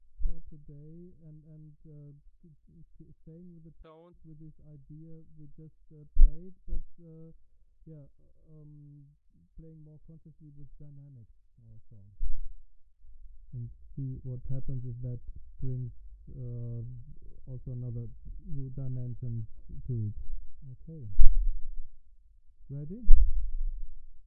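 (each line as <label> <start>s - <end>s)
Very quiet muffled talking in the distance. 0.0s - 24.3s
A quiet thumping. 0.2s - 0.4s
A quiet thumping. 6.1s - 6.8s
A quiet thumping. 12.2s - 12.5s
A quiet thumping. 21.1s - 22.0s
A quiet thumping. 23.0s - 23.8s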